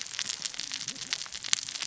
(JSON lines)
{"label": "biophony, cascading saw", "recorder": "SoundTrap 600 or HydroMoth"}